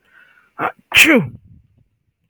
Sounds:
Sneeze